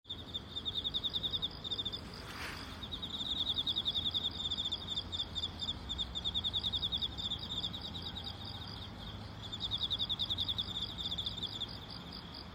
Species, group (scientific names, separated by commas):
Teleogryllus emma, Orthoptera